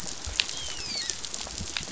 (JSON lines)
{"label": "biophony, dolphin", "recorder": "SoundTrap 500"}